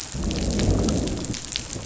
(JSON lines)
{"label": "biophony, growl", "recorder": "SoundTrap 500"}